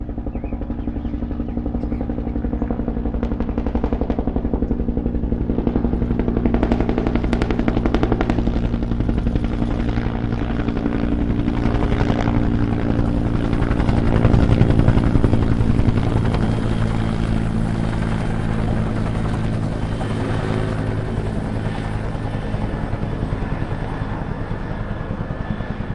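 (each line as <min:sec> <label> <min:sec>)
0:00.0 Rhythmic, mid-pitched chopping sound of a helicopter approaching with clear, bassy ambience. 0:13.4
0:13.4 Helicopter passes overhead with prominent mid-frequency noise. 0:17.4
0:17.4 Windy helicopter noise fades as it moves away. 0:25.9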